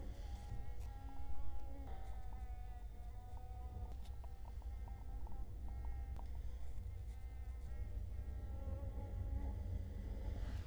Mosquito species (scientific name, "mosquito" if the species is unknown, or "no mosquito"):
Culex quinquefasciatus